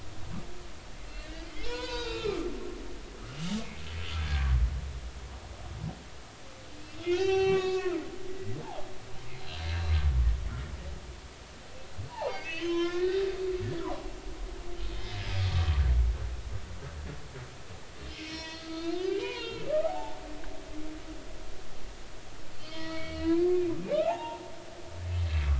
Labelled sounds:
1.1	2.5	humpback whale, 0.86 to 7.1 kHz
3.3	4.5	humpback whale, 1.5 to 3.1 kHz
6.8	8.0	humpback whale, 0.80 to 5.9 kHz
9.3	9.9	humpback whale, 0.80 to 4.2 kHz
12.1	13.3	humpback whale, 0.80 to 6.1 kHz
13.6	15.8	humpback whale, 0.96 to 5.2 kHz
18.2	20.2	humpback whale, 0.80 to 5.9 kHz
22.6	23.5	humpback whale, 0.93 to 4.7 kHz
24.0	24.4	humpback whale, 0.80 to 2.8 kHz

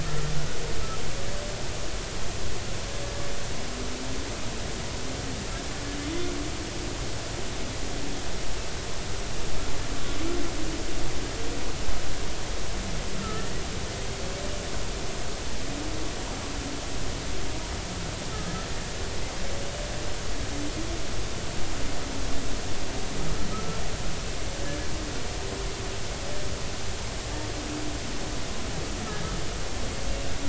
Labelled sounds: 0.0	0.3	humpback whale, 1.2 to 1.4 kHz
13.2	13.6	humpback whale, 1.2 to 2.0 kHz
18.3	18.7	humpback whale, 1.2 to 1.4 kHz
23.5	23.8	humpback whale, 1.2 to 1.4 kHz

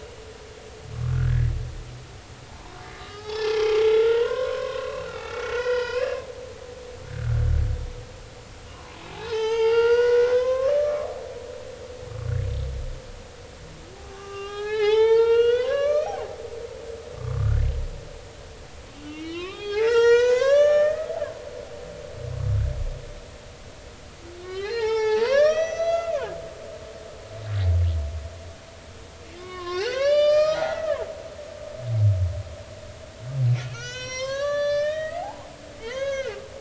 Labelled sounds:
1.1	1.5	humpback whale, 1.3 to 1.9 kHz
2.5	3.5	humpback whale, 0.80 to 5.6 kHz
3.8	6.3	humpback whale, 0.80 to 5.1 kHz
8.7	11.2	humpback whale, 0.80 to 6.5 kHz
14.0	16.2	humpback whale, 0.80 to 5.8 kHz
17.2	17.6	humpback whale, 0.99 to 1.6 kHz
19.0	21.1	humpback whale, 0.80 to 6.8 kHz
24.4	26.7	humpback whale, 0.80 to 6.1 kHz
29.4	31.1	humpback whale, 0.80 to 7.4 kHz
33.7	36.4	humpback whale, 0.80 to 7.2 kHz

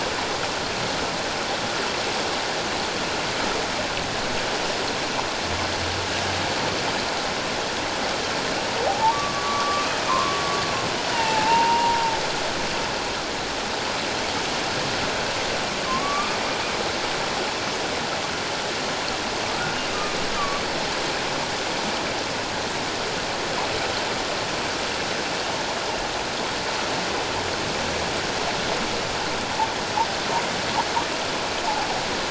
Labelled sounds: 8.9	10.4	humpback whale, 0.78 to 1.2 kHz
11.1	12.0	humpback whale, 0.78 to 2.9 kHz
15.8	16.4	humpback whale, 1.0 to 1.2 kHz
20.4	20.6	humpback whale, 1.1 to 1.2 kHz

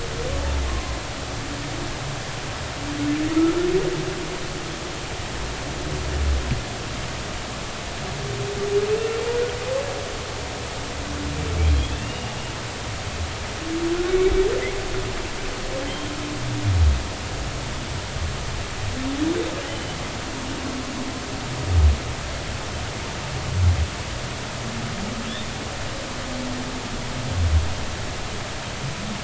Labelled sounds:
0.7	0.9	humpback whale, 0.99 to 1.1 kHz
12.0	12.3	humpback whale, 2.7 to 2.9 kHz
19.7	20.0	humpback whale, 3.0 to 3.1 kHz

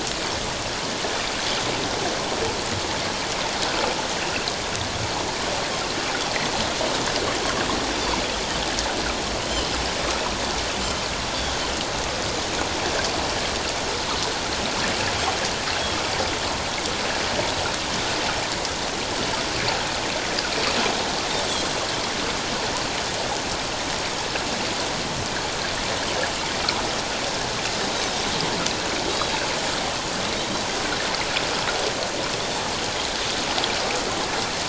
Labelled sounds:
9.4	9.7	Pacific white-sided dolphin, 2.8 to 3.3 kHz
21.5	21.7	Pacific white-sided dolphin, 7.6 to 7.8 kHz

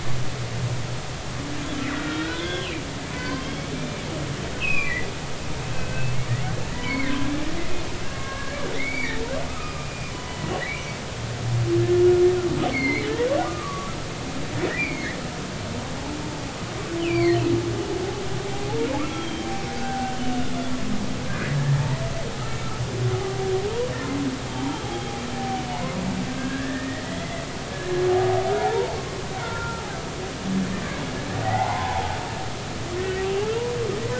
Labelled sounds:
1.9	2.8	humpback whale, 1.3 to 3.6 kHz
3.1	4.1	humpback whale, 0.96 to 4.8 kHz
4.6	5.1	humpback whale, 1.1 to 2.9 kHz
5.7	6.1	humpback whale, 1.5 to 2.7 kHz
6.7	7.1	humpback whale, 0.93 to 2.3 kHz
8.1	9.1	humpback whale, 1.0 to 2.4 kHz
9.5	11.1	humpback whale, 0.83 to 2.6 kHz
12.7	13.1	humpback whale, 1.8 to 4.6 kHz
13.4	15.2	humpback whale, 0.99 to 2.6 kHz
17.0	17.4	humpback whale, 1.8 to 4.7 kHz
19.0	19.5	humpback whale, 1.1 to 3.4 kHz
19.8	20.3	humpback whale, 1.4 to 3.1 kHz
21.5	22.0	humpback whale, 0.83 to 1.9 kHz
24.5	24.9	humpback whale, 0.80 to 3.2 kHz
26.3	27.1	humpback whale, 1.5 to 2.0 kHz
28.5	30.0	humpback whale, 0.80 to 1.5 kHz
31.4	33.3	humpback whale, 0.80 to 2.7 kHz

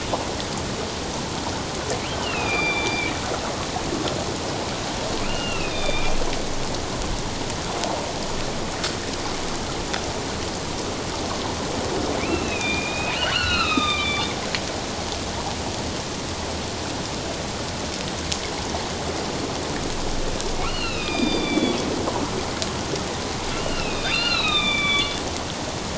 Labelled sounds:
2.2	3.1	killer whale, northern resident, A clan, AA subclan, A05 pod, 2.2 to 4.9 kHz
5.3	6.2	killer whale, northern resident, A clan, AA subclan, A05 pod, 1.2 to 4.8 kHz
12.2	14.3	killer whale, northern resident, A clan, AA subclan, A05 pod, 1.1 to 4.5 kHz
20.6	21.8	killer whale, northern resident, A clan, AA subclan, A05 pod, 1.2 to 5.2 kHz
23.5	25.2	killer whale, northern resident, A clan, AA subclan, A05 pod, 1.1 to 4.9 kHz

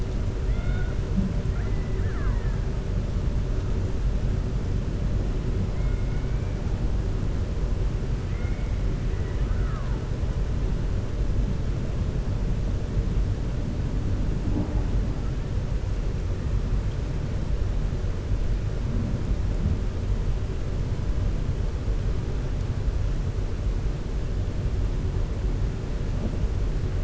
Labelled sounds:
0.4	0.9	killer whale, 0.70 to 4.3 kHz
1.4	2.6	killer whale, 0.75 to 2.1 kHz
8.2	8.7	killer whale, 1.4 to 3.0 kHz
9.1	10.0	killer whale, 0.89 to 2.0 kHz

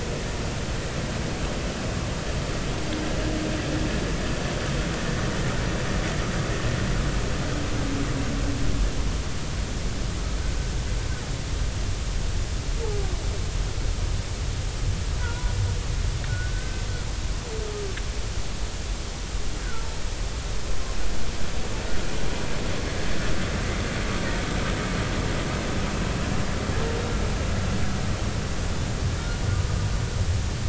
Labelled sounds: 15.2	15.5	humpback whale, 0.90 to 1.0 kHz
16.3	16.8	humpback whale, 1.4 to 1.6 kHz

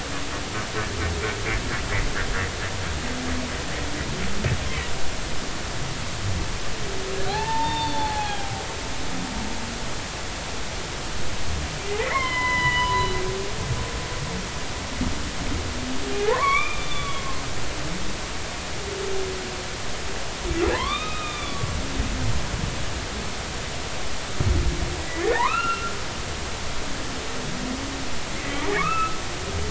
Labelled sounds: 7.3	8.6	humpback whale, 0.80 to 4.7 kHz
12.0	13.2	humpback whale, 0.93 to 4.1 kHz
16.3	17.3	humpback whale, 0.80 to 3.6 kHz
20.8	22.7	humpback whale, 0.80 to 3.8 kHz
25.0	25.9	humpback whale, 0.80 to 2.9 kHz
28.3	29.2	humpback whale, 1.0 to 2.7 kHz

